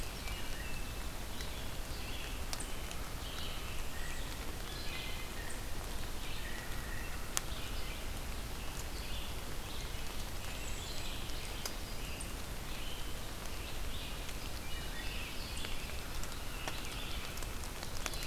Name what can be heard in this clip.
Red-eyed Vireo, Wood Thrush, American Robin, American Crow